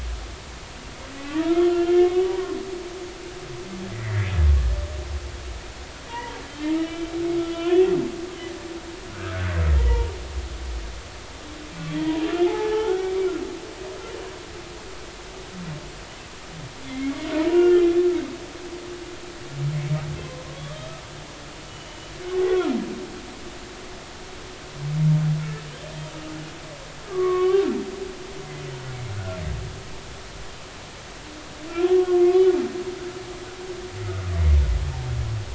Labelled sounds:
1.2	2.2	humpback whale, 1.1 to 3.4 kHz
3.9	4.3	humpback whale, 1.6 to 2.1 kHz
6.1	6.4	humpback whale, 0.86 to 2.0 kHz
6.7	7.1	humpback whale, 2.8 to 3.1 kHz
7.4	7.9	humpback whale, 0.96 to 3.1 kHz
9.1	10.1	humpback whale, 0.86 to 1.7 kHz
12.0	13.2	humpback whale, 0.80 to 1.8 kHz
16.9	17.2	humpback whale, 2.0 to 2.3 kHz
17.5	18.0	humpback whale, 1.3 to 3.2 kHz
19.7	20.0	humpback whale, 1.9 to 2.3 kHz
20.5	20.9	humpback whale, 0.99 to 1.3 kHz
22.5	22.8	humpback whale, 1.2 to 1.5 kHz
27.1	27.6	humpback whale, 1.0 to 3.2 kHz
29.1	29.4	humpback whale, 1.3 to 1.5 kHz
32.2	32.5	humpback whale, 2.1 to 2.4 kHz

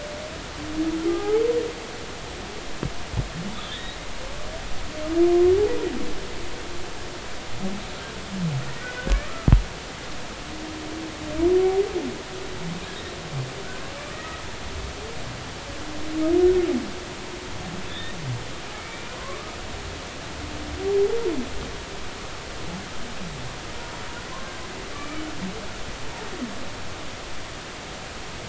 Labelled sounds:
1.1	1.4	humpback whale, 0.80 to 1.3 kHz
3.5	4.0	humpback whale, 1.7 to 4.0 kHz
5.2	5.5	humpback whale, 1.0 to 1.2 kHz
8.8	9.5	humpback whale, 1.2 to 2.0 kHz
14.1	14.4	humpback whale, 1.2 to 2.0 kHz
17.9	18.2	humpback whale, 1.7 to 3.8 kHz
18.8	19.6	humpback whale, 0.99 to 2.4 kHz
24.9	25.2	humpback whale, 1.1 to 2.5 kHz

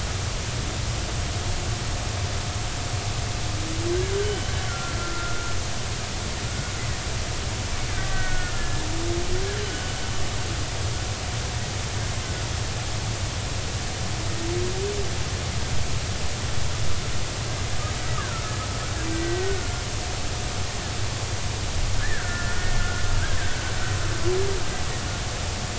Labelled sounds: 4.2	5.5	killer whale, Bigg's (transient), 1.3 to 3.1 kHz
8.0	8.8	killer whale, Bigg's (transient), 1.4 to 2.0 kHz
18.2	18.5	killer whale, Bigg's (transient), 1.3 to 1.8 kHz
19.1	19.7	killer whale, Bigg's (transient), 1.4 to 2.0 kHz
22.0	23.0	killer whale, Bigg's (transient), 1.3 to 2.0 kHz

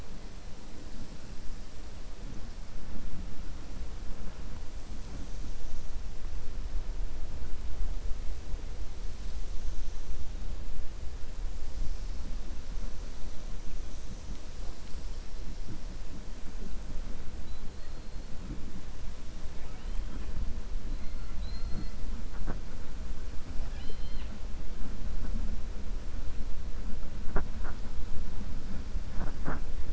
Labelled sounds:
21.3	22.0	killer whale, 3.9 to 4.8 kHz
23.6	24.3	killer whale, 0.84 to 5.3 kHz

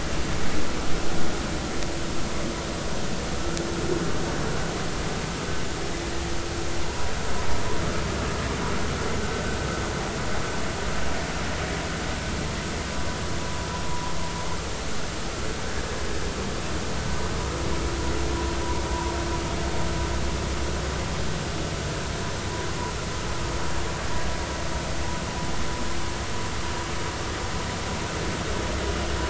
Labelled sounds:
3.3	3.6	vessel noise, 1.2 to 1.5 kHz
6.8	7.1	vessel noise, 0.86 to 1.0 kHz
9.3	9.6	vessel noise, 1.4 to 1.6 kHz

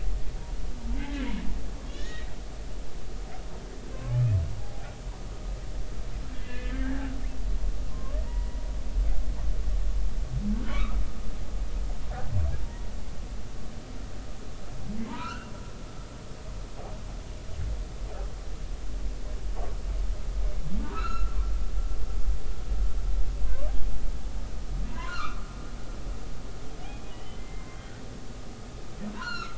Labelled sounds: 1.0	2.3	humpback whale, 1.7 to 3.9 kHz
4.6	4.9	humpback whale, 0.80 to 0.86 kHz
6.4	7.2	humpback whale, 1.3 to 3.1 kHz
7.9	8.7	humpback whale, 0.90 to 2.0 kHz
10.7	11.0	humpback whale, 1.1 to 2.7 kHz
12.6	12.9	humpback whale, 0.90 to 0.99 kHz
15.0	15.5	humpback whale, 0.86 to 1.7 kHz
16.2	16.5	humpback whale, 2.6 to 3.0 kHz
20.9	21.4	humpback whale, 1.2 to 4.2 kHz
23.4	23.7	humpback whale, 0.99 to 1.2 kHz
24.9	25.4	humpback whale, 0.90 to 1.6 kHz
26.8	28.0	humpback whale, 1.4 to 3.4 kHz
29.1	29.5	humpback whale, 1.2 to 4.4 kHz

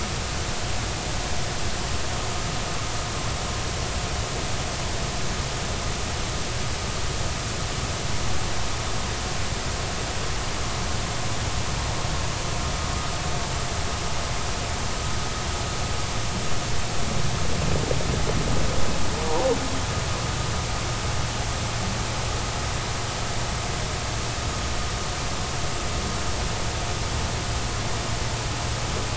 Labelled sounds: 19.3	19.5	humpback whale, 0.80 to 1.0 kHz

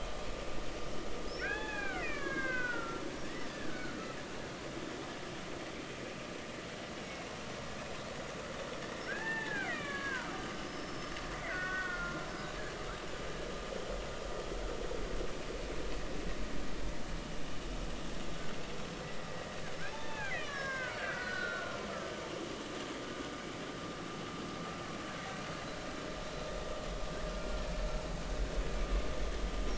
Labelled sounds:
1.4	4.0	killer whale, Bigg's (transient), 0.80 to 3.5 kHz
9.1	10.3	killer whale, Bigg's (transient), 0.80 to 2.9 kHz
10.6	12.3	killer whale, Bigg's (transient), 1.3 to 5.3 kHz
19.0	19.3	killer whale, Bigg's (transient), 1.9 to 2.0 kHz
19.9	21.9	killer whale, Bigg's (transient), 0.80 to 5.6 kHz

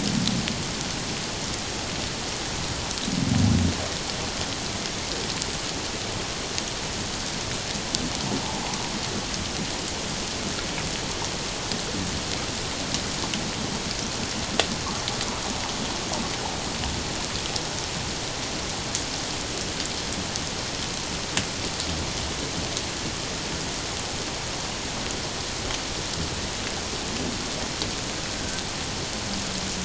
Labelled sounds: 28.4	28.6	humpback whale, 1.5 to 1.7 kHz

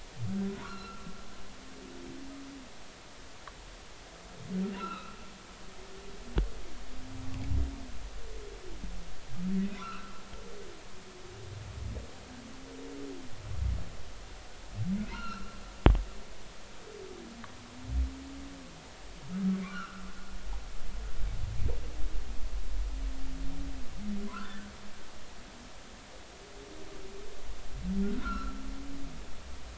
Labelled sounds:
0.6	1.1	humpback whale, 0.93 to 4.2 kHz
4.7	5.2	humpback whale, 1.2 to 4.1 kHz
9.8	10.2	humpback whale, 0.96 to 1.6 kHz
15.1	15.6	humpback whale, 1.2 to 4.3 kHz
19.6	20.0	humpback whale, 1.0 to 1.7 kHz
28.0	28.6	humpback whale, 0.96 to 1.6 kHz

